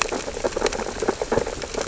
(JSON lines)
{"label": "biophony, sea urchins (Echinidae)", "recorder": "SoundTrap 600 or HydroMoth"}